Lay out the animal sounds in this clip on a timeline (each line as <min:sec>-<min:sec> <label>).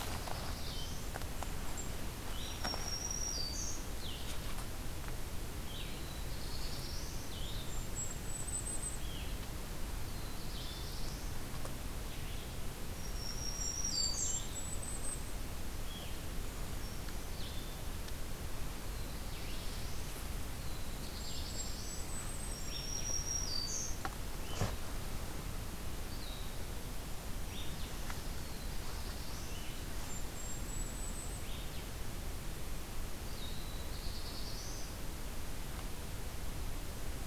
0:00.0-0:01.1 Black-throated Blue Warbler (Setophaga caerulescens)
0:00.0-0:26.6 Blue-headed Vireo (Vireo solitarius)
0:02.3-0:04.0 Black-throated Green Warbler (Setophaga virens)
0:05.6-0:07.3 Black-throated Blue Warbler (Setophaga caerulescens)
0:07.6-0:09.1 Golden-crowned Kinglet (Regulus satrapa)
0:10.0-0:11.5 Black-throated Blue Warbler (Setophaga caerulescens)
0:12.9-0:14.5 Black-throated Green Warbler (Setophaga virens)
0:13.1-0:15.3 Golden-crowned Kinglet (Regulus satrapa)
0:18.7-0:22.0 Black-throated Blue Warbler (Setophaga caerulescens)
0:21.2-0:22.7 Golden-crowned Kinglet (Regulus satrapa)
0:22.4-0:24.2 Black-throated Green Warbler (Setophaga virens)
0:27.0-0:37.3 Blue-headed Vireo (Vireo solitarius)
0:28.1-0:29.7 Black-throated Blue Warbler (Setophaga caerulescens)
0:29.6-0:31.7 Golden-crowned Kinglet (Regulus satrapa)
0:33.3-0:35.0 Black-throated Blue Warbler (Setophaga caerulescens)